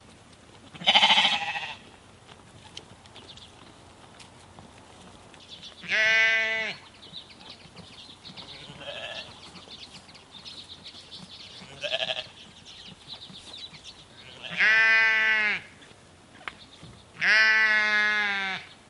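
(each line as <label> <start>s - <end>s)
Goats bleat at irregular intervals, with some calls overlapping and others fading. 0.0s - 18.9s
Sheep and goats bleat, their voices overlapping in a natural rhythm. 0.0s - 18.9s
Sheep bleat softly and drawn-out, while goats make higher-pitched, short sounds. 0.0s - 18.9s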